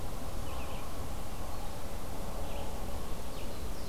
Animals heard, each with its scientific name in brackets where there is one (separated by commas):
Red-eyed Vireo (Vireo olivaceus), Black-throated Blue Warbler (Setophaga caerulescens)